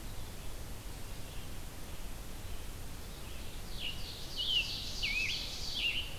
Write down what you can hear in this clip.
Red-eyed Vireo, Ovenbird, Scarlet Tanager